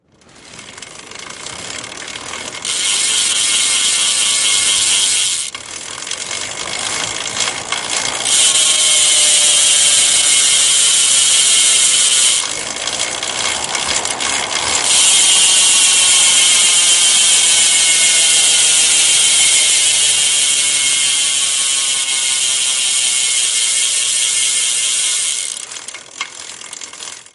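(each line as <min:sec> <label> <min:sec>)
0:00.0 A sharp, high-pitched grinding noise resembling metal being sawed, continuous and harsh. 0:27.3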